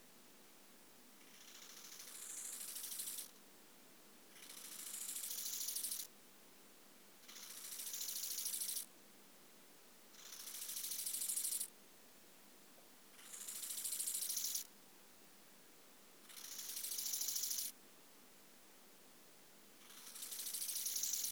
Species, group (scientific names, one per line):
Chorthippus eisentrauti
Orthoptera